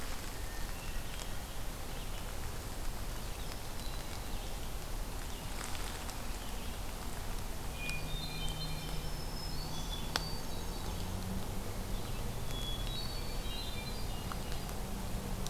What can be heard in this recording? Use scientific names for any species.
Catharus guttatus, Setophaga virens